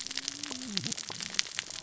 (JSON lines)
{"label": "biophony, cascading saw", "recorder": "SoundTrap 600 or HydroMoth"}